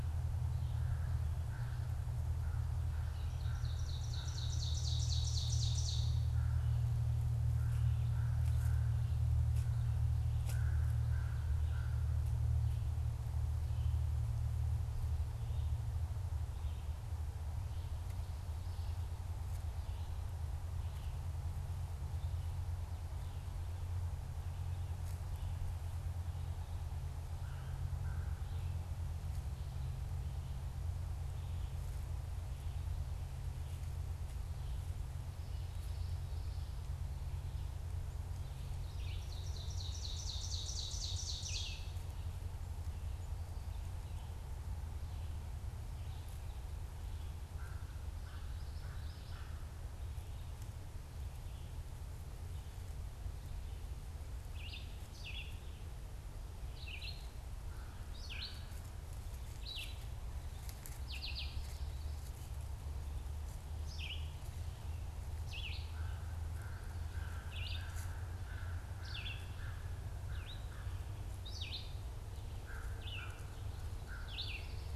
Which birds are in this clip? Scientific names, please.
Corvus brachyrhynchos, Seiurus aurocapilla, Vireo olivaceus